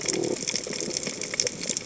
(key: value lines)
label: biophony
recorder: HydroMoth